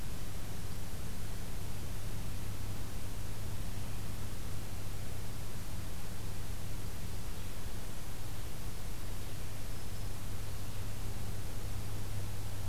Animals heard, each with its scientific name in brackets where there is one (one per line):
Black-throated Green Warbler (Setophaga virens)